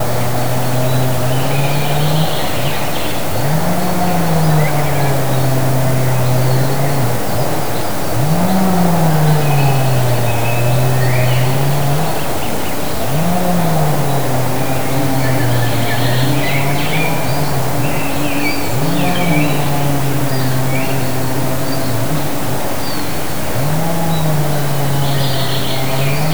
Are there sounds of nature?
yes